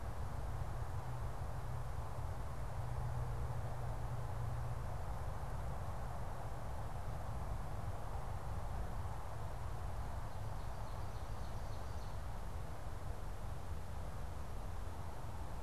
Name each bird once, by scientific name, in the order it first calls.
Seiurus aurocapilla